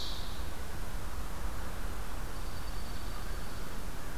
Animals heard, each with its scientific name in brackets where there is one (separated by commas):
Ovenbird (Seiurus aurocapilla), Dark-eyed Junco (Junco hyemalis)